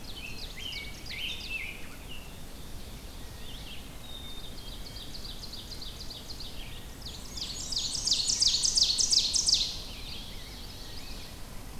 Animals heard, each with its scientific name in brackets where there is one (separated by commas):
Chestnut-sided Warbler (Setophaga pensylvanica), Black-capped Chickadee (Poecile atricapillus), Ovenbird (Seiurus aurocapilla), Rose-breasted Grosbeak (Pheucticus ludovicianus), Black-and-white Warbler (Mniotilta varia), Red-eyed Vireo (Vireo olivaceus), Wood Thrush (Hylocichla mustelina)